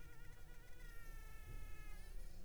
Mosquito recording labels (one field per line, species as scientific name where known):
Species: Culex pipiens complex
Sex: female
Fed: unfed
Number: one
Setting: cup